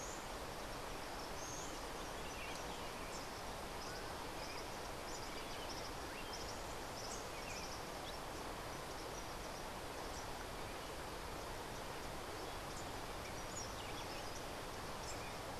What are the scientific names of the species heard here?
Tyrannus melancholicus